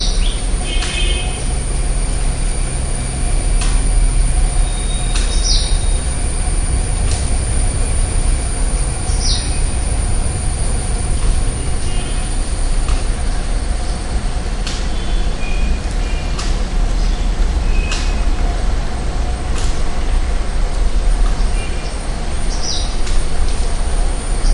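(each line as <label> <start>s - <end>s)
A bird chirps loudly. 0.0s - 0.6s
A machine runs constantly in the distance. 0.0s - 24.5s
A car horn sounds in the distance. 0.6s - 1.6s
A worker hits wood forcefully with a tool. 0.7s - 1.0s
A worker hits a wooden object hard with a tool. 3.4s - 3.8s
Crickets chirping steadily. 4.4s - 6.2s
A worker hits a wooden object hard with a tool. 5.1s - 5.4s
A bird chirps loudly. 5.3s - 5.9s
The sharp, distant sound of a plastic object striking. 7.0s - 7.4s
A bird chirps loudly. 8.9s - 9.6s
A car horn sounds in the distance. 9.2s - 9.7s
A worker hits an object with a tool. 11.1s - 11.4s
A car horn sounds in the distance. 11.6s - 12.3s
A worker hits a wooden object with a tool. 12.9s - 13.1s
A worker hits an object with a tool. 14.6s - 14.9s
A car horn sounds in the distance. 15.0s - 16.4s
A worker hits an object with a tool. 16.3s - 16.7s
A bird chirps in the distance. 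17.0s - 17.4s
A car horn rings in the distance. 17.5s - 18.5s
A worker hits an object with a tool. 17.8s - 18.2s
A plastic object is hit and shatters. 19.4s - 20.0s
A car horn sounds in the distance. 21.4s - 22.1s
A bird chirps loudly. 22.4s - 23.0s
A worker hits an object with a tool. 22.9s - 23.3s
A bird chirps. 24.4s - 24.5s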